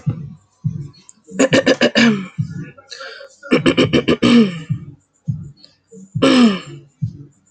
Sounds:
Throat clearing